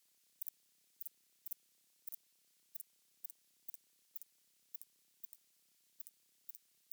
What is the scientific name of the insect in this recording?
Thyreonotus corsicus